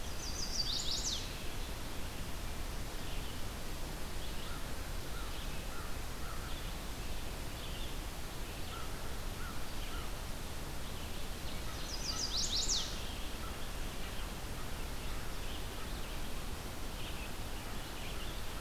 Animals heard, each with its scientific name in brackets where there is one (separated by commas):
American Crow (Corvus brachyrhynchos), Red-eyed Vireo (Vireo olivaceus), Chestnut-sided Warbler (Setophaga pensylvanica)